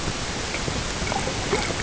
{"label": "ambient", "recorder": "HydroMoth"}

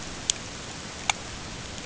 {"label": "ambient", "recorder": "HydroMoth"}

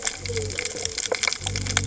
{"label": "biophony", "recorder": "HydroMoth"}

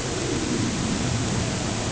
{"label": "ambient", "recorder": "HydroMoth"}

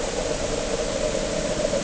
{"label": "anthrophony, boat engine", "recorder": "HydroMoth"}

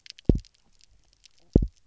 {"label": "biophony, double pulse", "recorder": "SoundTrap 300"}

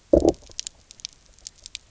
{"label": "biophony, low growl", "recorder": "SoundTrap 300"}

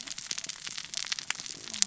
{"label": "biophony, cascading saw", "recorder": "SoundTrap 600 or HydroMoth"}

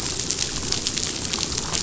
{"label": "biophony, damselfish", "recorder": "SoundTrap 500"}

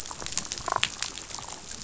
{"label": "biophony, damselfish", "recorder": "SoundTrap 500"}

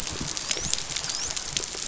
{"label": "biophony, dolphin", "recorder": "SoundTrap 500"}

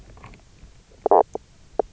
{"label": "biophony, knock croak", "recorder": "SoundTrap 300"}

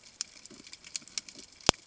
{"label": "ambient", "recorder": "HydroMoth"}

